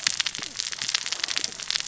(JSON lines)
{"label": "biophony, cascading saw", "recorder": "SoundTrap 600 or HydroMoth"}